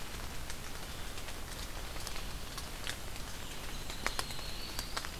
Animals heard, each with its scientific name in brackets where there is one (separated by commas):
Yellow-rumped Warbler (Setophaga coronata)